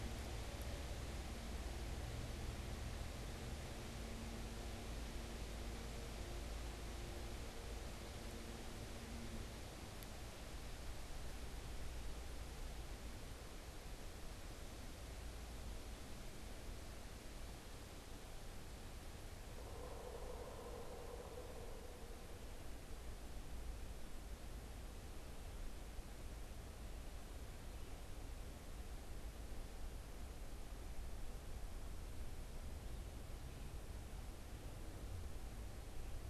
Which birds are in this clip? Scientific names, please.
Dryocopus pileatus